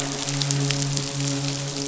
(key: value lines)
label: biophony, midshipman
recorder: SoundTrap 500